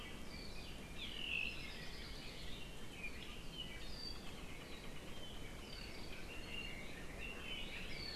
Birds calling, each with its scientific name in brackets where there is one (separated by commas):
Apapane (Himatione sanguinea), Hawaii Creeper (Loxops mana)